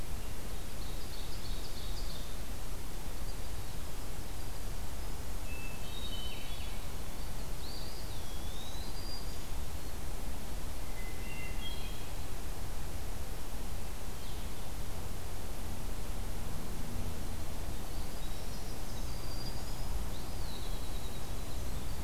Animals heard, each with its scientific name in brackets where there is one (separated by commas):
Black-throated Green Warbler (Setophaga virens), Eastern Wood-Pewee (Contopus virens), Hermit Thrush (Catharus guttatus), Ovenbird (Seiurus aurocapilla), Winter Wren (Troglodytes hiemalis)